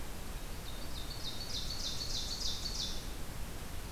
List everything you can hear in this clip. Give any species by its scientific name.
Seiurus aurocapilla